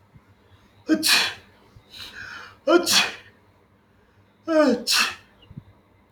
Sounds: Sneeze